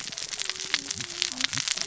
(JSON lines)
{"label": "biophony, cascading saw", "recorder": "SoundTrap 600 or HydroMoth"}